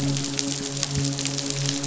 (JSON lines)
{"label": "biophony, midshipman", "recorder": "SoundTrap 500"}